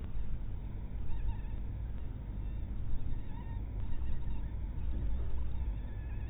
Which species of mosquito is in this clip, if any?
mosquito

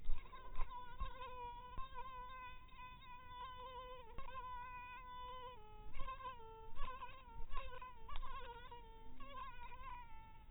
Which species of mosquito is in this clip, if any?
mosquito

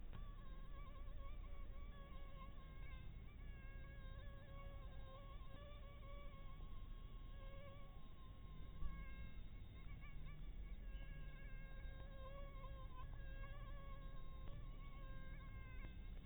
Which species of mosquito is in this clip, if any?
Anopheles dirus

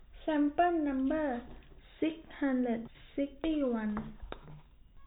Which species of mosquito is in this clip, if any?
no mosquito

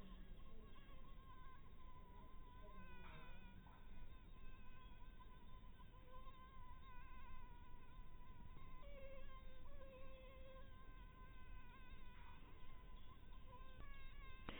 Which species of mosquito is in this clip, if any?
mosquito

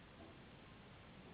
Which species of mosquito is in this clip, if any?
Anopheles gambiae s.s.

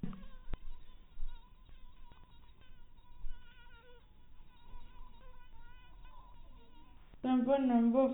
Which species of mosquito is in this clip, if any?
mosquito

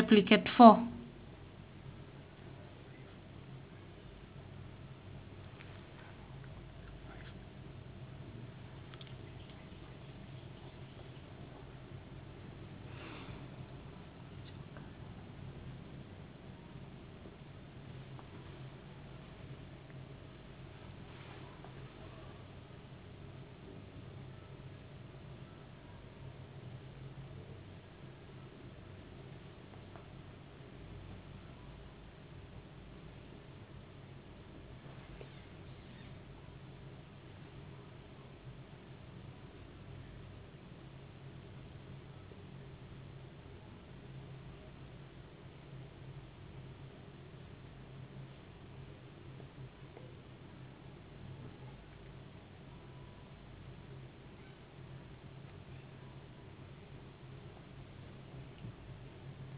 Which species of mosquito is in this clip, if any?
no mosquito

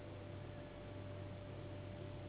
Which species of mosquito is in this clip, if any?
Anopheles gambiae s.s.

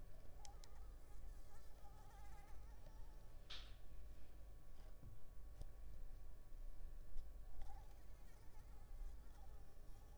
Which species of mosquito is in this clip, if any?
Anopheles arabiensis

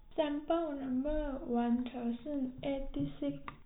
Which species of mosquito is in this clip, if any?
no mosquito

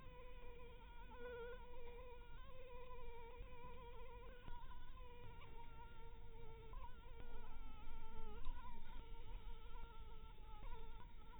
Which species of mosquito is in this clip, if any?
Anopheles minimus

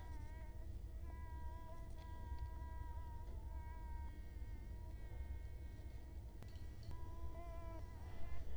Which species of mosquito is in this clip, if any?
Culex quinquefasciatus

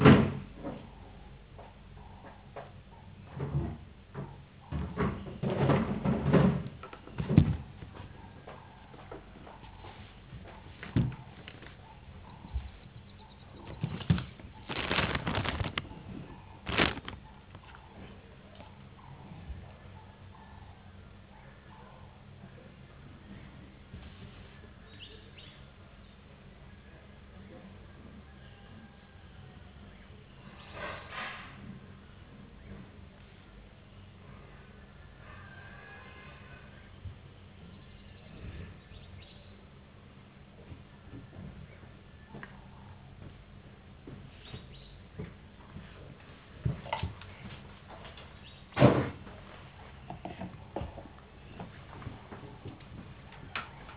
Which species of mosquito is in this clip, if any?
no mosquito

